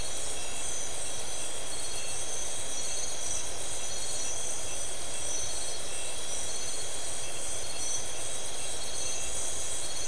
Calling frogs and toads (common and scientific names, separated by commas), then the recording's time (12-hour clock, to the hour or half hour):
none
12:30am